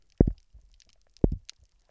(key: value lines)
label: biophony, double pulse
recorder: SoundTrap 300